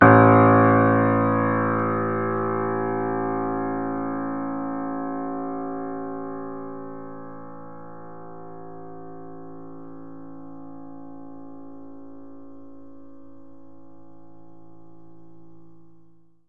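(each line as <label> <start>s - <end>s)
A single piano note followed by a lingering resonance. 0.0s - 16.5s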